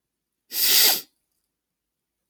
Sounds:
Sniff